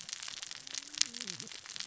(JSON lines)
{"label": "biophony, cascading saw", "recorder": "SoundTrap 600 or HydroMoth"}